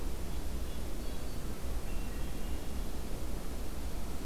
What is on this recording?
Red-breasted Nuthatch, Black-throated Green Warbler, Hermit Thrush